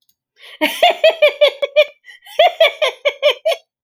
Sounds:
Laughter